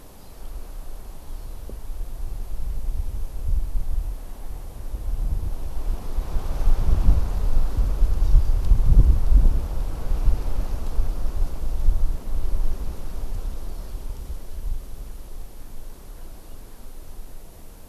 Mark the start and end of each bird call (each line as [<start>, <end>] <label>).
[8.21, 8.41] Hawaii Amakihi (Chlorodrepanis virens)